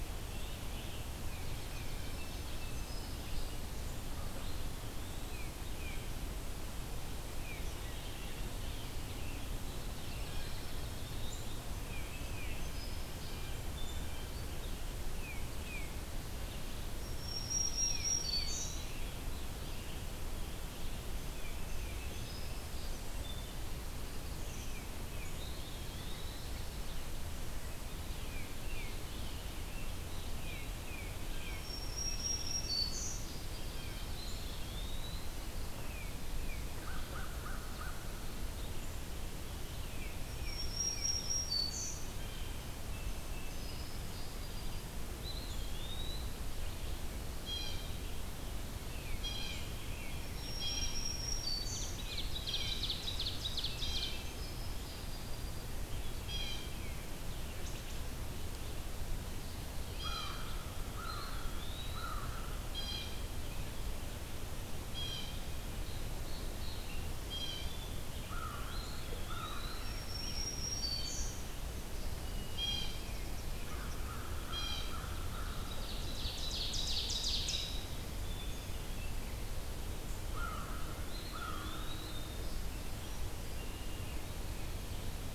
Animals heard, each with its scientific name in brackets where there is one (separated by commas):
Tufted Titmouse (Baeolophus bicolor), Dark-eyed Junco (Junco hyemalis), Ovenbird (Seiurus aurocapilla), Blue Jay (Cyanocitta cristata), American Crow (Corvus brachyrhynchos), Black-throated Green Warbler (Setophaga virens), Eastern Wood-Pewee (Contopus virens), Eastern Towhee (Pipilo erythrophthalmus), Wood Thrush (Hylocichla mustelina), unidentified call